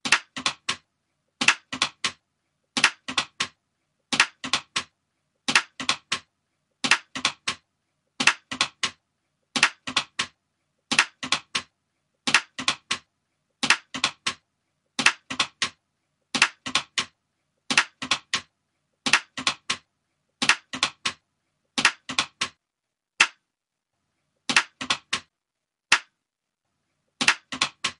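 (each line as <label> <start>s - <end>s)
Clapping sounds. 0.0s - 0.8s
Clapping sounds. 1.4s - 3.5s
Clapping sounds. 4.1s - 6.2s
Clapping sounds. 6.8s - 23.4s
Clapping sounds. 24.5s - 26.0s
Clapping sounds. 27.1s - 28.0s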